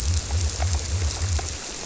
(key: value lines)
label: biophony
recorder: SoundTrap 300